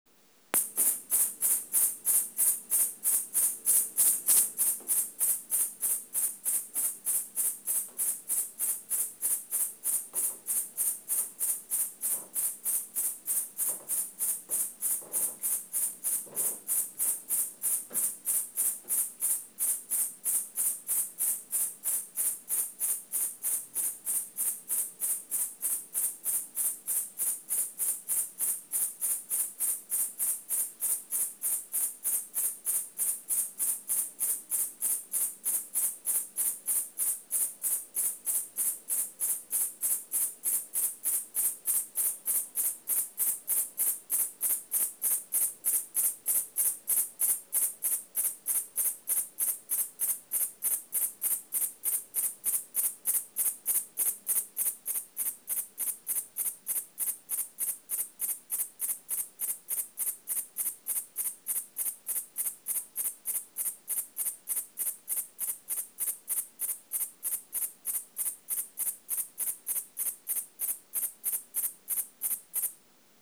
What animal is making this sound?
Liara magna, an orthopteran